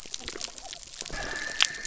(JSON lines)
{"label": "biophony", "recorder": "SoundTrap 300"}